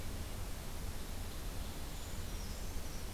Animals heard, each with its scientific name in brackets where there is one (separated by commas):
Brown Creeper (Certhia americana), Ovenbird (Seiurus aurocapilla)